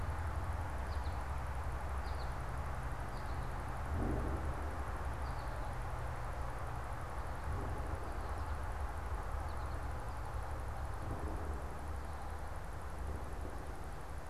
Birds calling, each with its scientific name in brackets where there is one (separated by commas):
American Goldfinch (Spinus tristis)